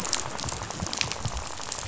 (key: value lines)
label: biophony, rattle
recorder: SoundTrap 500